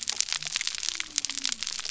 {"label": "biophony", "recorder": "SoundTrap 300"}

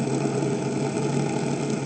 {"label": "ambient", "recorder": "HydroMoth"}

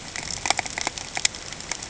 {"label": "ambient", "recorder": "HydroMoth"}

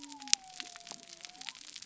{"label": "biophony", "recorder": "SoundTrap 300"}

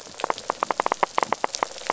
{"label": "biophony, rattle", "recorder": "SoundTrap 500"}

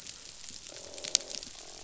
{"label": "biophony, croak", "recorder": "SoundTrap 500"}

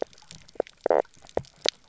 {"label": "biophony, knock croak", "recorder": "SoundTrap 300"}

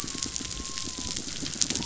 {"label": "biophony", "recorder": "SoundTrap 500"}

